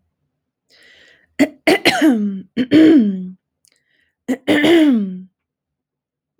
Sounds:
Throat clearing